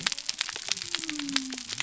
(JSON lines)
{"label": "biophony", "recorder": "SoundTrap 300"}